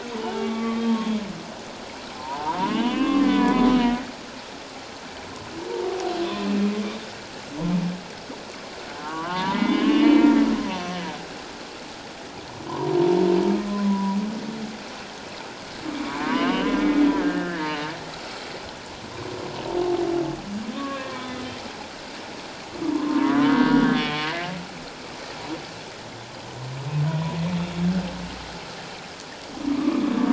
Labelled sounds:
0.1	1.1	humpback whale, 0.78 to 3.6 kHz
2.1	3.7	humpback whale, 0.84 to 3.2 kHz
9.0	10.3	humpback whale, 0.84 to 3.2 kHz
12.7	12.9	humpback whale, 0.88 to 1.1 kHz
13.7	14.2	humpback whale, 0.91 to 1.1 kHz
16.0	16.8	humpback whale, 0.91 to 3.1 kHz
17.2	17.9	humpback whale, 1.5 to 3.0 kHz
20.7	21.4	humpback whale, 1.0 to 3.6 kHz
22.9	24.3	humpback whale, 0.88 to 3.4 kHz
29.7	30.1	humpback whale, 1.0 to 1.3 kHz

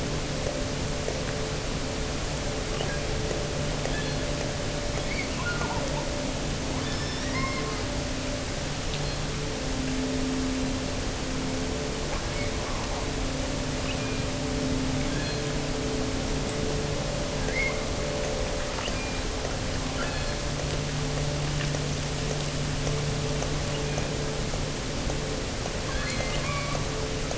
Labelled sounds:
2.7	3.2	killer whale, offshore, 1.1 to 3.2 kHz
3.9	4.4	killer whale, offshore, 1.5 to 4.5 kHz
5.0	6.2	killer whale, offshore, 0.66 to 4.8 kHz
6.8	7.8	killer whale, offshore, 0.82 to 6.0 kHz
8.9	9.4	killer whale, offshore, 2.9 to 4.4 kHz
12.1	13.0	killer whale, offshore, 0.82 to 2.4 kHz
13.8	14.4	killer whale, offshore, 1.0 to 3.0 kHz
15.0	15.6	killer whale, offshore, 1.4 to 4.4 kHz
17.4	17.8	killer whale, offshore, 1.4 to 2.3 kHz
18.7	19.4	killer whale, offshore, 1.5 to 4.2 kHz
19.9	20.5	killer whale, offshore, 1.2 to 4.5 kHz
23.7	24.2	killer whale, offshore, 1.4 to 3.4 kHz
25.8	27.0	killer whale, offshore, 0.91 to 5.9 kHz

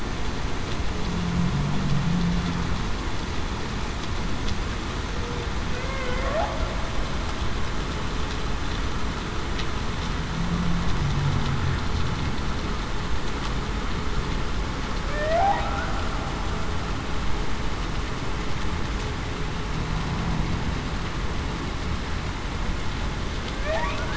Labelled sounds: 5.8	6.7	humpback whale, 0.61 to 2.2 kHz
15.1	15.7	humpback whale, 0.56 to 0.84 kHz
23.5	23.9	humpback whale, 0.52 to 0.98 kHz

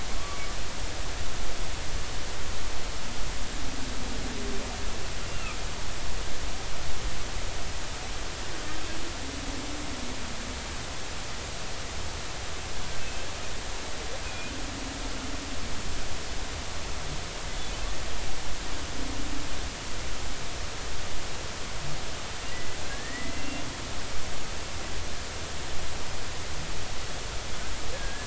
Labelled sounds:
0.2	0.4	humpback whale, 1.1 to 1.2 kHz
5.3	5.6	humpback whale, 2.3 to 2.8 kHz
13.0	13.3	humpback whale, 2.5 to 2.7 kHz
14.2	14.5	humpback whale, 2.4 to 2.6 kHz
22.9	23.7	humpback whale, 1.6 to 2.8 kHz
27.9	28.2	humpback whale, 1.5 to 1.8 kHz

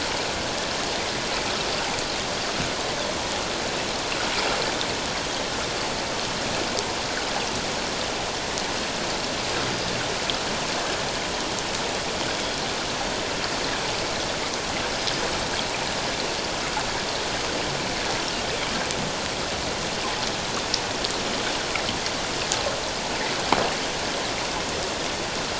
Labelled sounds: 12.3	12.6	Pacific white-sided dolphin, 3.2 to 3.5 kHz

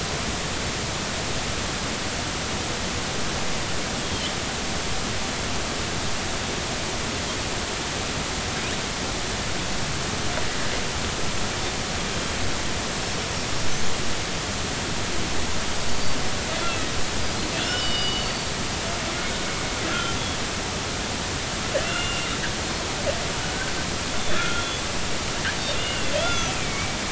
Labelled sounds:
4.0	4.3	killer whale, northern resident, G clan, GG subclan, call N45, 3.0 to 3.4 kHz
16.5	16.9	killer whale, northern resident, G clan, call N40, 2.5 to 3.5 kHz
17.5	18.5	killer whale, northern resident, G clan, call N40, 2.6 to 4.9 kHz
19.9	20.2	killer whale, northern resident, G clan, call N40, 1.3 to 1.5 kHz
21.8	22.8	killer whale, northern resident, G clan, call N40, 2.6 to 4.4 kHz
24.2	24.6	killer whale, northern resident, G clan, call N40, 1.2 to 3.6 kHz
25.8	26.6	killer whale, northern resident, G clan, call N40, 1.3 to 3.6 kHz
26.5	27.0	killer whale, northern resident, G clan, GG subclan, call N45, 2.1 to 2.7 kHz

